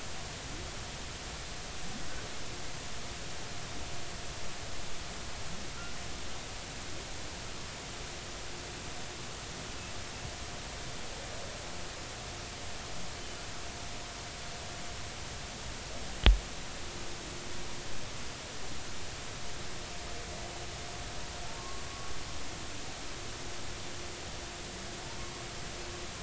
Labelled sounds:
21.6	21.8	humpback whale, 0.96 to 1.1 kHz

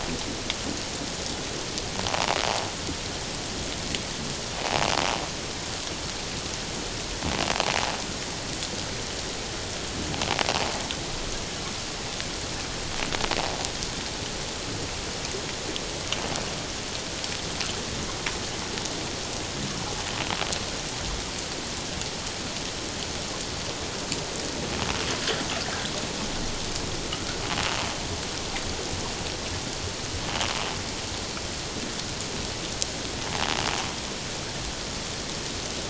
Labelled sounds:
2.1	2.4	invertebrate grinding on or near the hydrophone, 0.78 to 1.0 kHz

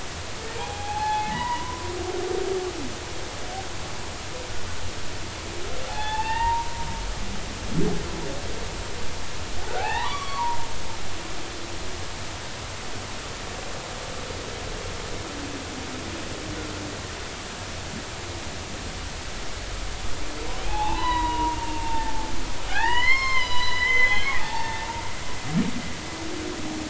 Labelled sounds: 0.6	2.3	humpback whale, 0.80 to 2.6 kHz
5.9	6.7	humpback whale, 0.80 to 3.8 kHz
9.7	10.7	humpback whale, 0.80 to 5.8 kHz
20.7	22.3	humpback whale, 0.80 to 4.1 kHz
22.7	24.9	humpback whale, 0.80 to 5.4 kHz

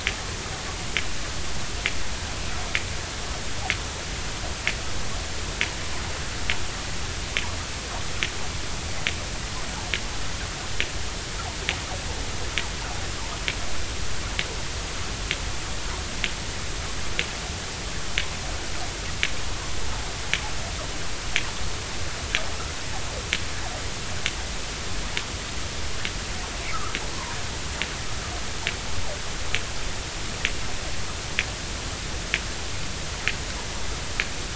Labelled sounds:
26.7	27.0	fish, 1.1 to 1.4 kHz

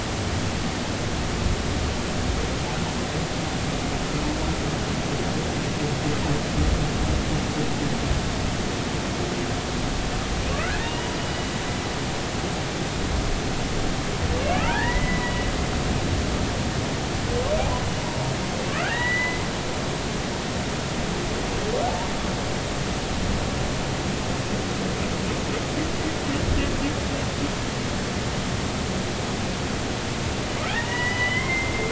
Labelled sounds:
10.5	11.5	humpback whale, 1.1 to 3.0 kHz
11.8	12.1	humpback whale, 2.7 to 3.0 kHz
14.5	15.4	humpback whale, 0.80 to 2.0 kHz
18.7	19.5	humpback whale, 1.1 to 4.0 kHz
30.7	31.8	humpback whale, 0.80 to 3.3 kHz

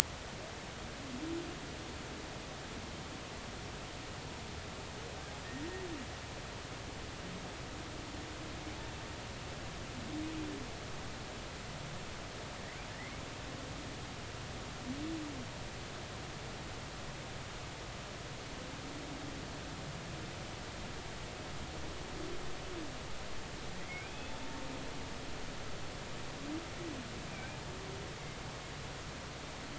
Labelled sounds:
12.9	13.2	humpback whale, 1.7 to 2.3 kHz
23.8	24.4	humpback whale, 1.9 to 3.6 kHz
27.3	27.6	humpback whale, 2.2 to 2.5 kHz

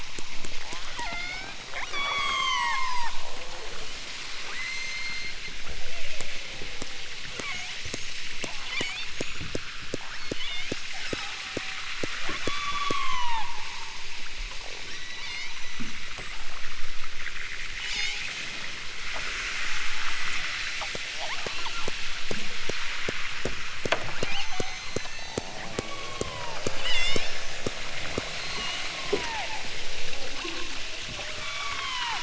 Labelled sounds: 0.6	1.6	killer whale, southern Alaska resident, 0.32 to 6.6 kHz
1.9	3.9	killer whale, southern Alaska resident, 0.32 to 8.0 kHz
4.5	5.4	killer whale, southern Alaska resident, 1.7 to 8.0 kHz
5.7	6.5	killer whale, southern Alaska resident, 2.5 to 3.9 kHz
7.4	8.2	killer whale, southern Alaska resident, 0.46 to 7.3 kHz
8.7	10.7	killer whale, southern Alaska resident, 1.6 to 8.0 kHz
11.0	11.5	killer whale, southern Alaska resident, 0.85 to 8.0 kHz
12.5	13.4	killer whale, southern Alaska resident, 0.60 to 8.0 kHz
14.8	16.1	killer whale, southern Alaska resident, 1.7 to 8.0 kHz
17.8	18.2	killer whale, southern Alaska resident, 0.46 to 8.0 kHz
19.9	20.4	killer whale, southern Alaska resident, 6.4 to 8.0 kHz
21.2	22.0	killer whale, southern Alaska resident, 0.50 to 3.9 kHz
24.2	27.3	killer whale, southern Alaska resident, 0.37 to 8.0 kHz
28.4	29.6	killer whale, southern Alaska resident, 0.43 to 7.0 kHz
30.3	30.7	killer whale, southern Alaska resident, 0.47 to 2.1 kHz
31.4	32.2	killer whale, southern Alaska resident, 0.60 to 3.9 kHz

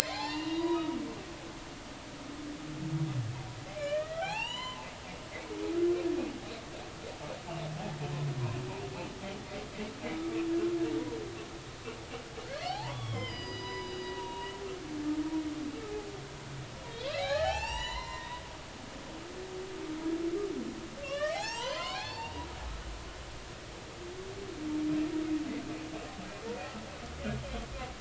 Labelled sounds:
0.0	1.5	humpback whale, 0.80 to 7.3 kHz
3.8	4.9	humpback whale, 0.80 to 7.2 kHz
12.7	14.6	humpback whale, 0.80 to 5.0 kHz
16.9	18.4	humpback whale, 0.80 to 8.0 kHz
21.0	22.4	humpback whale, 0.80 to 7.6 kHz

